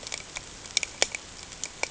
{"label": "ambient", "recorder": "HydroMoth"}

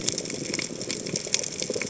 {"label": "biophony, chatter", "recorder": "HydroMoth"}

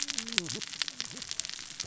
{"label": "biophony, cascading saw", "recorder": "SoundTrap 600 or HydroMoth"}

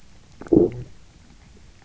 {"label": "biophony, low growl", "recorder": "SoundTrap 300"}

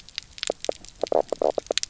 {"label": "biophony, knock croak", "recorder": "SoundTrap 300"}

